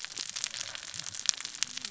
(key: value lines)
label: biophony, cascading saw
recorder: SoundTrap 600 or HydroMoth